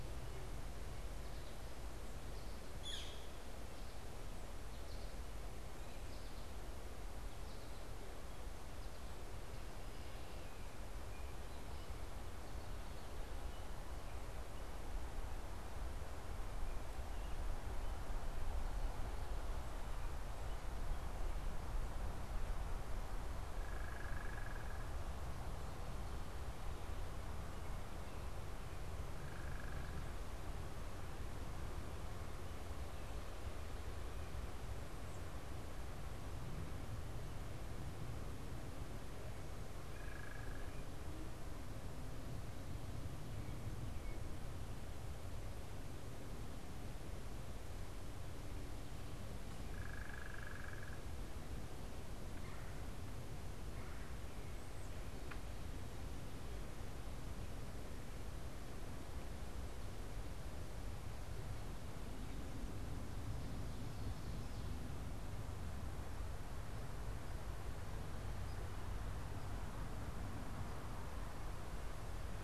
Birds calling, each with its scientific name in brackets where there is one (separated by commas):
Northern Flicker (Colaptes auratus), American Goldfinch (Spinus tristis), Red-bellied Woodpecker (Melanerpes carolinus), unidentified bird